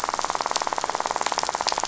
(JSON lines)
{"label": "biophony, rattle", "recorder": "SoundTrap 500"}